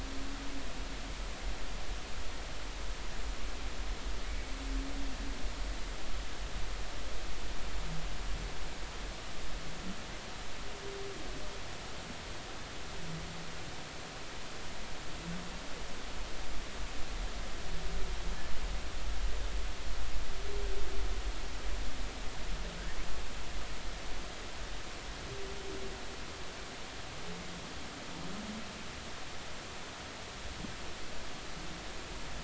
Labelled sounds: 4.2	4.5	humpback whale, 2.1 to 2.3 kHz

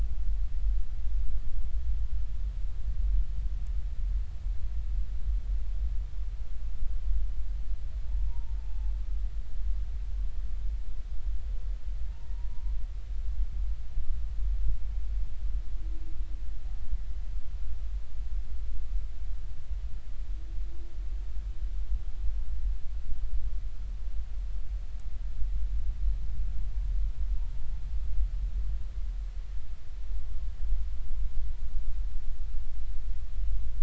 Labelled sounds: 8.2	8.9	humpback whale, 0.80 to 0.99 kHz
12.5	12.7	humpback whale, 0.93 to 1.1 kHz

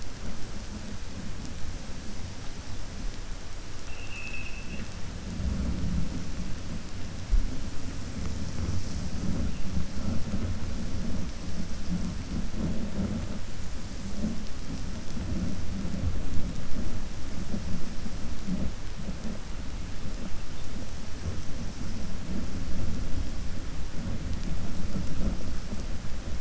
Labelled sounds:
3.8	4.9	vessel noise, 1.7 to 3.4 kHz

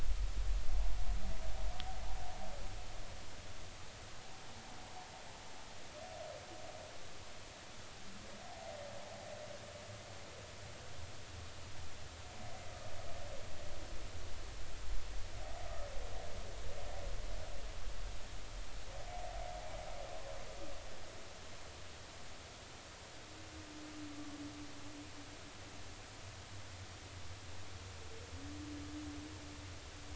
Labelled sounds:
8.5	8.8	humpback whale, 0.80 to 0.90 kHz

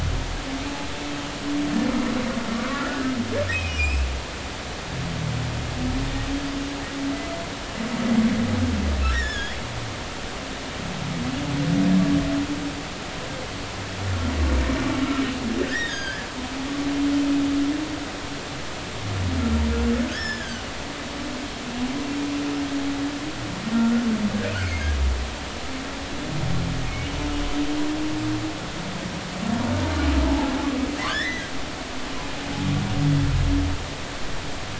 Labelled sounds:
2.7	4.1	humpback whale, 1.3 to 5.5 kHz
9.1	9.6	humpback whale, 1.5 to 7.0 kHz
15.7	16.3	humpback whale, 1.5 to 6.7 kHz
20.1	20.6	humpback whale, 1.4 to 5.5 kHz
23.7	24.0	humpback whale, 1.3 to 1.5 kHz
24.6	24.9	humpback whale, 2.0 to 2.5 kHz
26.9	27.1	humpback whale, 2.1 to 2.3 kHz
30.2	31.5	humpback whale, 0.80 to 4.1 kHz

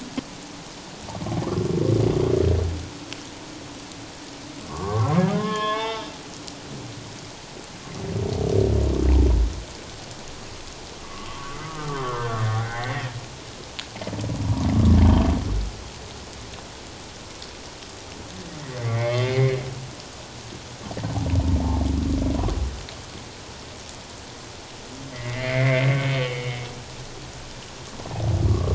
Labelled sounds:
4.7	6.1	humpback whale, 0.84 to 3.7 kHz
11.0	13.1	humpback whale, 0.78 to 2.2 kHz
15.0	15.3	humpback whale, 3.0 to 3.2 kHz
18.8	19.6	humpback whale, 1.8 to 2.3 kHz
25.1	26.6	humpback whale, 1.8 to 3.2 kHz
28.5	28.7	humpback whale, 1.0 to 1.2 kHz

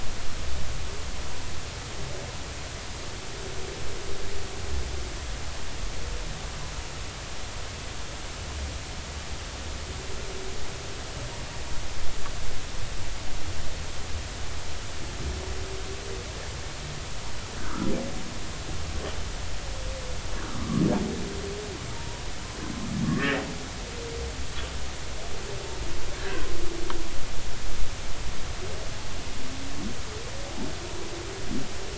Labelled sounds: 17.5	17.9	humpback whale, 1.2 to 1.8 kHz
20.5	20.8	humpback whale, 0.99 to 1.4 kHz
21.9	22.2	humpback whale, 0.86 to 1.0 kHz
23.1	23.4	humpback whale, 1.6 to 1.9 kHz
26.2	26.5	humpback whale, 1.4 to 1.8 kHz

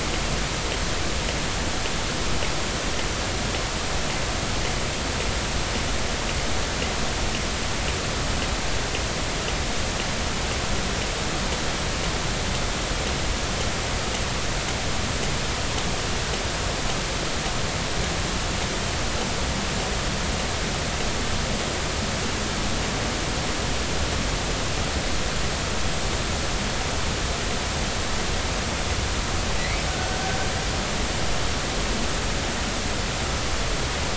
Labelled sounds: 29.6	30.2	killer whale, Bigg's (transient), 1.3 to 2.3 kHz

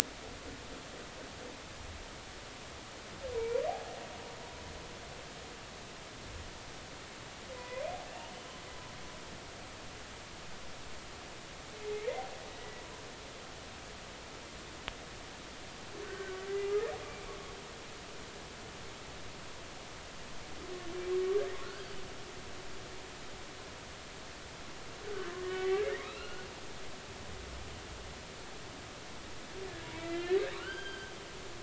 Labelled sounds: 7.5	8.3	humpback whale, 0.93 to 2.9 kHz
12.5	12.8	humpback whale, 1.9 to 2.0 kHz
16.0	17.3	humpback whale, 1.1 to 2.5 kHz
21.6	21.9	humpback whale, 1.3 to 1.8 kHz
25.5	26.5	humpback whale, 1.0 to 4.3 kHz
29.9	31.1	humpback whale, 1.1 to 4.8 kHz

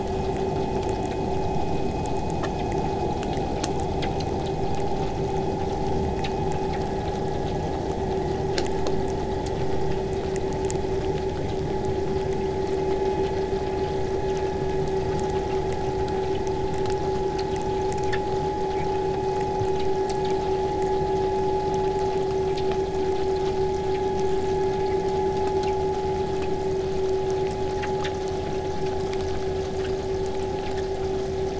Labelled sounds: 21.5	26.5	vessel noise, 0 to 8.0 kHz

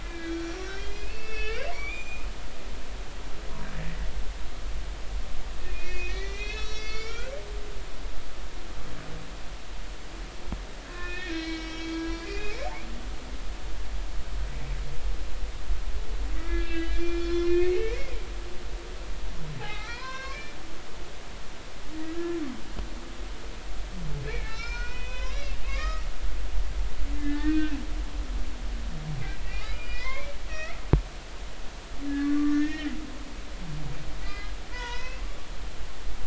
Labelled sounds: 0.0	2.3	humpback whale, 0.90 to 7.5 kHz
5.6	7.3	humpback whale, 1.3 to 7.4 kHz
10.9	12.6	humpback whale, 1.3 to 6.2 kHz
16.4	18.0	humpback whale, 1.2 to 5.8 kHz
19.6	20.5	humpback whale, 0.80 to 5.5 kHz
22.1	22.4	humpback whale, 1.2 to 1.8 kHz
24.2	26.1	humpback whale, 0.90 to 5.8 kHz
27.1	27.8	humpback whale, 1.5 to 3.5 kHz
29.5	30.8	humpback whale, 0.96 to 5.8 kHz
32.0	33.0	humpback whale, 1.1 to 2.8 kHz
34.2	35.2	humpback whale, 0.90 to 5.7 kHz

